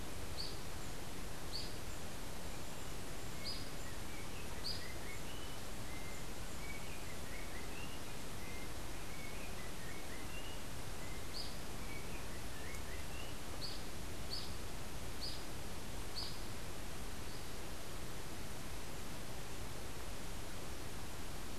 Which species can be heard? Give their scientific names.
Icterus chrysater